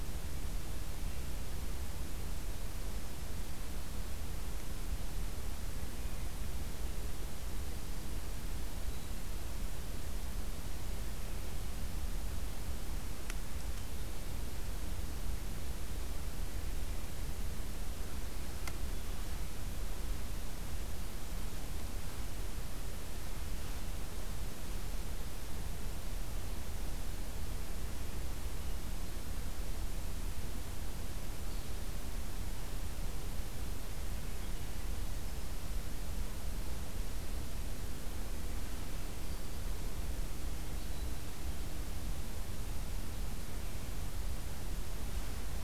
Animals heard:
forest ambience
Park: Acadia National Park